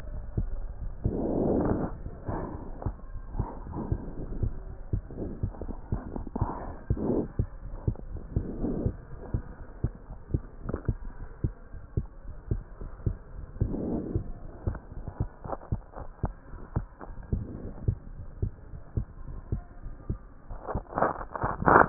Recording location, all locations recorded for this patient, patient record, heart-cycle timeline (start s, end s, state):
pulmonary valve (PV)
aortic valve (AV)+pulmonary valve (PV)+tricuspid valve (TV)+mitral valve (MV)
#Age: Child
#Sex: Female
#Height: 161.0 cm
#Weight: 43.8 kg
#Pregnancy status: False
#Murmur: Absent
#Murmur locations: nan
#Most audible location: nan
#Systolic murmur timing: nan
#Systolic murmur shape: nan
#Systolic murmur grading: nan
#Systolic murmur pitch: nan
#Systolic murmur quality: nan
#Diastolic murmur timing: nan
#Diastolic murmur shape: nan
#Diastolic murmur grading: nan
#Diastolic murmur pitch: nan
#Diastolic murmur quality: nan
#Outcome: Normal
#Campaign: 2015 screening campaign
0.00	8.93	unannotated
8.93	9.09	diastole
9.09	9.20	S1
9.20	9.30	systole
9.30	9.46	S2
9.46	9.62	diastole
9.62	9.70	S1
9.70	9.80	systole
9.80	9.96	S2
9.96	10.09	diastole
10.09	10.20	S1
10.20	10.34	systole
10.34	10.48	S2
10.48	10.66	diastole
10.66	10.80	S1
10.80	10.86	systole
10.86	11.00	S2
11.00	11.20	diastole
11.20	11.28	S1
11.28	11.40	systole
11.40	11.54	S2
11.54	11.74	diastole
11.74	11.80	S1
11.80	11.96	systole
11.96	12.08	S2
12.08	12.28	diastole
12.28	12.36	S1
12.36	12.50	systole
12.50	12.64	S2
12.64	12.82	diastole
12.82	12.90	S1
12.90	13.02	systole
13.02	13.16	S2
13.16	13.36	diastole
13.36	13.44	S1
13.44	13.56	systole
13.56	13.70	S2
13.70	13.88	diastole
13.88	14.04	S1
14.04	14.14	systole
14.14	14.28	S2
14.28	14.50	diastole
14.50	14.58	S1
14.58	14.68	systole
14.68	14.80	S2
14.80	14.98	diastole
14.98	15.06	S1
15.06	15.16	systole
15.16	15.30	S2
15.30	15.50	diastole
15.50	15.58	S1
15.58	15.70	systole
15.70	15.82	S2
15.82	16.02	diastole
16.02	16.10	S1
16.10	16.22	systole
16.22	16.36	S2
16.36	16.54	diastole
16.54	16.60	S1
16.60	16.72	systole
16.72	16.88	S2
16.88	17.08	diastole
17.08	17.16	S1
17.16	17.30	systole
17.30	17.46	S2
17.46	17.64	diastole
17.64	17.72	S1
17.72	17.82	systole
17.82	17.94	S2
17.94	18.16	diastole
18.16	18.26	S1
18.26	18.38	systole
18.38	18.54	S2
18.54	18.74	diastole
18.74	18.82	S1
18.82	18.94	systole
18.94	19.10	S2
19.10	19.28	diastole
19.28	19.38	S1
19.38	19.50	systole
19.50	19.64	S2
19.64	19.84	diastole
19.84	19.94	S1
19.94	20.08	systole
20.08	21.89	unannotated